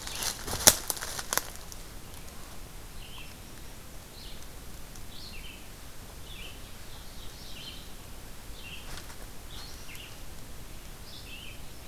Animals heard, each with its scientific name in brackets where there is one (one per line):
Red-eyed Vireo (Vireo olivaceus)
Ovenbird (Seiurus aurocapilla)